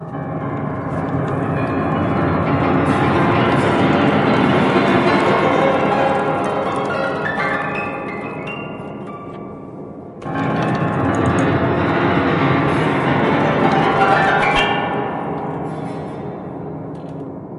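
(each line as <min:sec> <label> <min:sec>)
0:00.0 A piano is played expressively. 0:17.6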